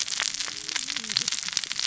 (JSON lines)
{"label": "biophony, cascading saw", "recorder": "SoundTrap 600 or HydroMoth"}